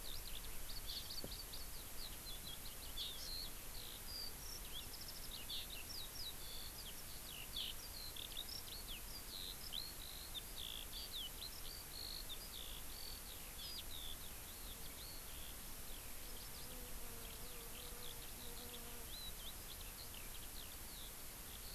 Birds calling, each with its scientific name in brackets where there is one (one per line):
Eurasian Skylark (Alauda arvensis)